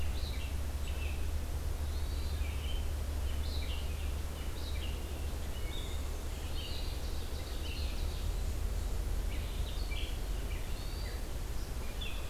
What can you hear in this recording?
Red-eyed Vireo, Hermit Thrush, Ovenbird